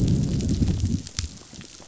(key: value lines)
label: biophony, growl
recorder: SoundTrap 500